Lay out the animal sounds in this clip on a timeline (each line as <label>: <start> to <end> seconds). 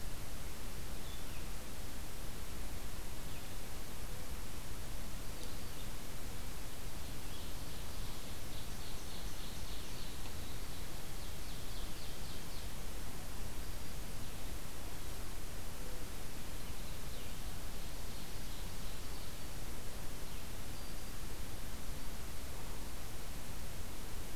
Red-eyed Vireo (Vireo olivaceus): 0.0 to 1.6 seconds
Red-eyed Vireo (Vireo olivaceus): 5.2 to 6.0 seconds
Ovenbird (Seiurus aurocapilla): 6.8 to 10.1 seconds
Ovenbird (Seiurus aurocapilla): 10.9 to 12.7 seconds
Ovenbird (Seiurus aurocapilla): 17.0 to 19.4 seconds